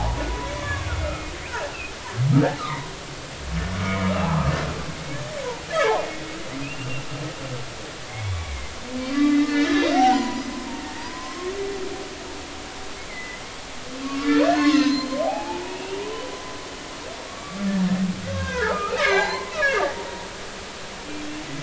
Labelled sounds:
0.6	1.2	humpback whale, 1.1 to 1.5 kHz
2.6	2.9	humpback whale, 0.90 to 1.4 kHz
3.8	4.5	humpback whale, 0.80 to 2.4 kHz
5.7	7.1	humpback whale, 0.80 to 2.8 kHz
8.1	8.7	humpback whale, 2.0 to 3.5 kHz
9.1	11.5	humpback whale, 0.86 to 6.1 kHz
13.1	13.4	humpback whale, 1.9 to 2.2 kHz
14.0	16.3	humpback whale, 0.80 to 6.5 kHz
17.3	17.6	humpback whale, 1.1 to 1.2 kHz
18.2	19.9	humpback whale, 0.80 to 7.2 kHz

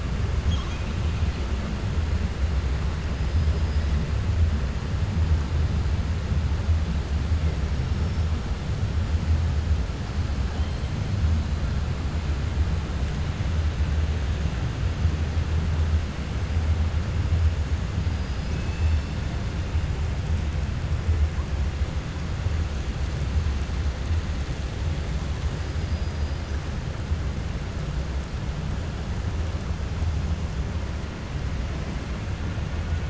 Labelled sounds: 0.4	0.9	killer whale, 1.1 to 6.7 kHz
25.8	26.3	killer whale, 4.4 to 5.0 kHz

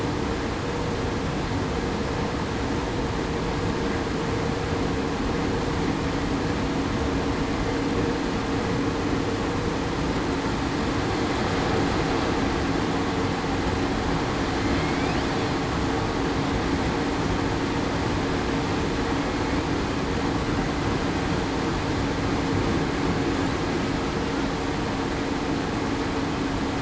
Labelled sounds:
14.8	15.2	killer whale, southern resident, 2.1 to 2.6 kHz

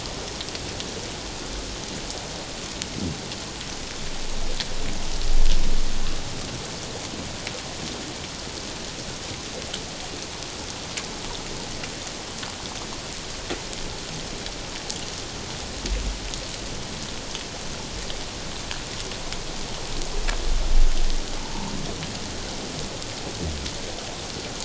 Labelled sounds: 21.4	21.7	humpback whale, 0.84 to 1.1 kHz

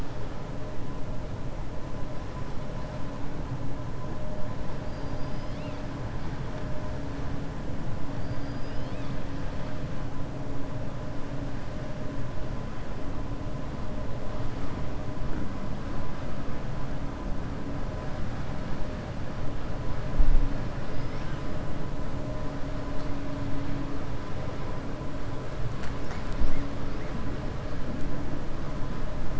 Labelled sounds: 4.8	5.8	killer whale, 2.3 to 5.6 kHz
8.1	9.2	killer whale, 2.4 to 5.2 kHz

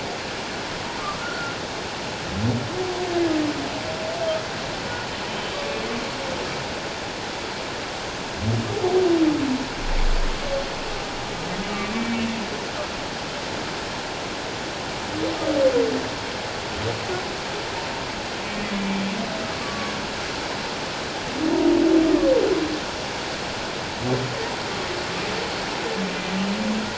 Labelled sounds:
1.0	1.6	humpback whale, 1.0 to 1.6 kHz
11.6	12.3	humpback whale, 2.2 to 2.4 kHz
18.8	19.0	humpback whale, 2.3 to 2.4 kHz
19.6	19.9	humpback whale, 1.1 to 1.2 kHz

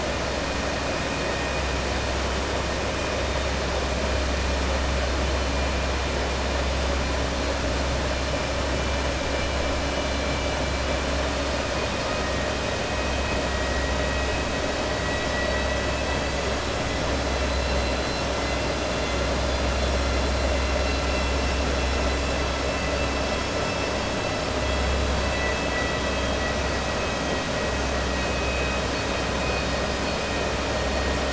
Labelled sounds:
15.0	16.5	vessel noise, 1.6 to 5.2 kHz
25.1	26.6	vessel noise, 1.3 to 4.6 kHz

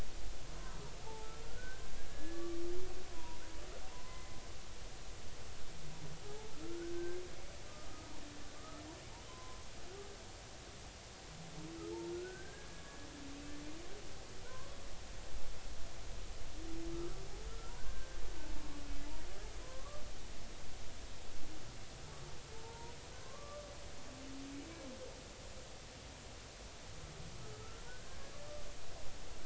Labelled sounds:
1.0	1.8	humpback whale, 0.80 to 1.6 kHz
2.1	2.6	humpback whale, 1.1 to 1.8 kHz
3.1	4.4	humpback whale, 0.90 to 2.1 kHz
6.3	7.2	humpback whale, 0.80 to 1.6 kHz
8.6	8.8	humpback whale, 1.2 to 1.4 kHz
9.3	9.6	humpback whale, 0.96 to 1.1 kHz
12.1	12.8	humpback whale, 1.4 to 1.8 kHz
14.4	14.8	humpback whale, 0.93 to 1.2 kHz
17.5	18.2	humpback whale, 1.3 to 1.6 kHz
19.6	20.0	humpback whale, 0.96 to 1.2 kHz
22.5	23.7	humpback whale, 0.83 to 1.2 kHz
27.9	28.2	humpback whale, 1.4 to 1.6 kHz

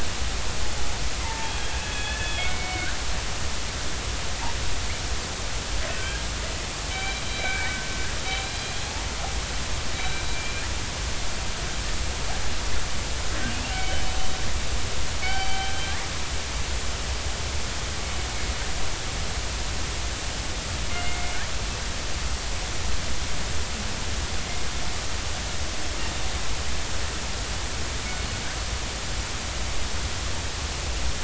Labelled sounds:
1.2	2.9	killer whale, northern resident, 0.80 to 3.5 kHz
5.9	6.2	killer whale, northern resident, 1.5 to 1.7 kHz
6.9	7.9	killer whale, northern resident, 1.5 to 4.0 kHz
8.4	8.8	killer whale, northern resident, 3.9 to 4.1 kHz
9.9	10.6	killer whale, northern resident, 2.3 to 4.0 kHz
13.5	13.8	killer whale, northern resident, 2.5 to 3.2 kHz
15.2	15.8	killer whale, northern resident, 0.80 to 4.7 kHz
20.9	21.4	killer whale, northern resident, 2.0 to 2.9 kHz

